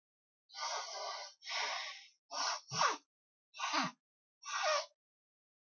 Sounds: Sneeze